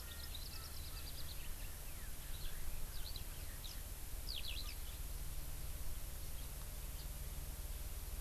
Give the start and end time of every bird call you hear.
[0.00, 1.40] Erckel's Francolin (Pternistis erckelii)
[2.90, 3.20] Eurasian Skylark (Alauda arvensis)
[3.60, 3.80] Eurasian Skylark (Alauda arvensis)
[4.20, 4.70] Eurasian Skylark (Alauda arvensis)

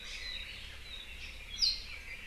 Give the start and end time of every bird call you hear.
[0.00, 0.40] Iiwi (Drepanis coccinea)
[0.20, 1.20] Apapane (Himatione sanguinea)
[1.50, 2.00] Apapane (Himatione sanguinea)

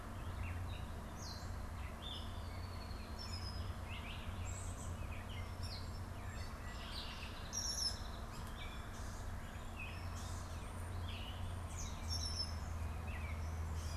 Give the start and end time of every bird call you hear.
[0.00, 13.97] Gray Catbird (Dumetella carolinensis)
[0.00, 13.97] Red-winged Blackbird (Agelaius phoeniceus)
[5.56, 8.36] Song Sparrow (Melospiza melodia)

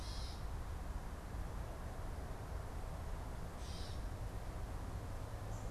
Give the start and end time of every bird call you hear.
[0.00, 5.70] Gray Catbird (Dumetella carolinensis)

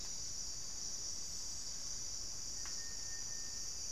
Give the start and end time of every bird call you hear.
[0.00, 3.92] Buff-throated Saltator (Saltator maximus)

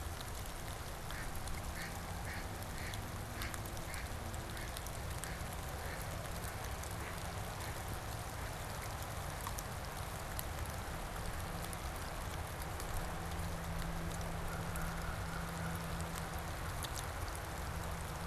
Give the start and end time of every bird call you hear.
[0.92, 9.02] Mallard (Anas platyrhynchos)
[14.42, 16.22] American Crow (Corvus brachyrhynchos)

